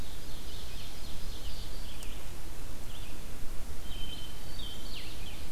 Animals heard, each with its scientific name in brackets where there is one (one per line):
Hermit Thrush (Catharus guttatus)
Red-eyed Vireo (Vireo olivaceus)
Ovenbird (Seiurus aurocapilla)